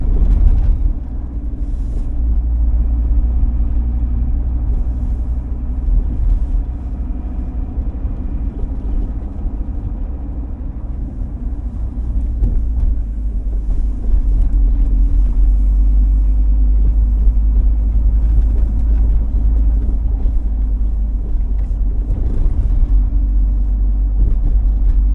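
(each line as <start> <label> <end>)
0.0 An engine muffled inside an urban bus. 25.1
0.0 Muffled traffic sounds heard from inside a vehicle. 25.1
0.0 Ambiance sound inside a public transport vehicle. 25.1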